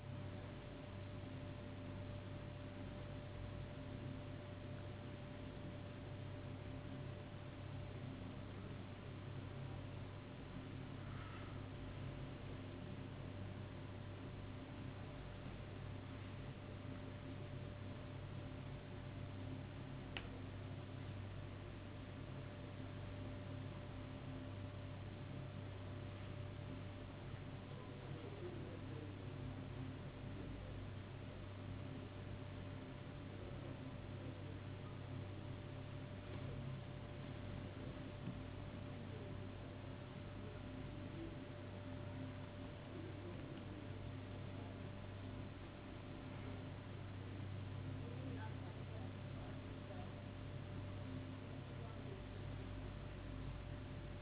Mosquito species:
no mosquito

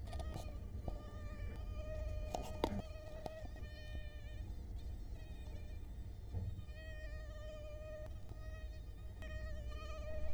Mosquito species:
Culex quinquefasciatus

